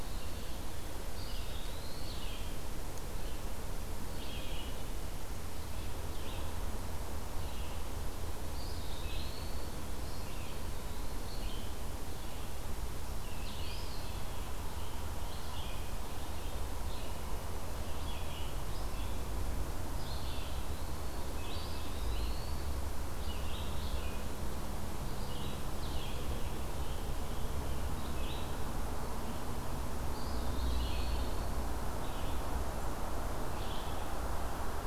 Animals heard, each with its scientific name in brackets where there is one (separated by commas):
Eastern Wood-Pewee (Contopus virens), Red-eyed Vireo (Vireo olivaceus), Scarlet Tanager (Piranga olivacea)